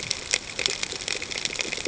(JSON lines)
{"label": "ambient", "recorder": "HydroMoth"}